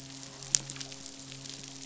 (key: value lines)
label: biophony, midshipman
recorder: SoundTrap 500